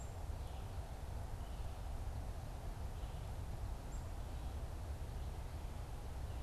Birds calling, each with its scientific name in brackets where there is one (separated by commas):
Black-capped Chickadee (Poecile atricapillus), Red-eyed Vireo (Vireo olivaceus)